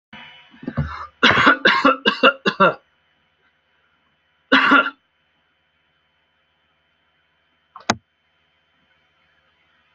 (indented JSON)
{
  "expert_labels": [
    {
      "quality": "ok",
      "cough_type": "dry",
      "dyspnea": false,
      "wheezing": false,
      "stridor": false,
      "choking": false,
      "congestion": false,
      "nothing": true,
      "diagnosis": "lower respiratory tract infection",
      "severity": "mild"
    }
  ]
}